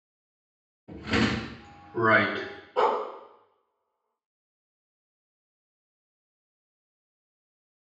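At 0.88 seconds, a wooden drawer opens. Then at 1.95 seconds, someone says "Right." Next, at 2.75 seconds, a dog barks.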